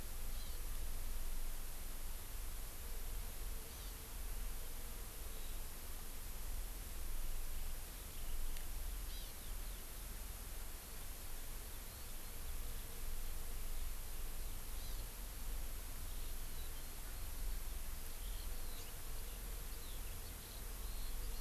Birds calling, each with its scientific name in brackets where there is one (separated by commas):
Hawaii Amakihi (Chlorodrepanis virens), Eurasian Skylark (Alauda arvensis)